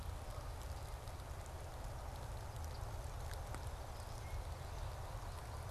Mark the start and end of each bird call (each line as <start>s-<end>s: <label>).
2.7s-2.9s: Yellow-rumped Warbler (Setophaga coronata)